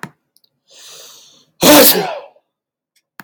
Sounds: Sneeze